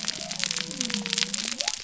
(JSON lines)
{"label": "biophony", "recorder": "SoundTrap 300"}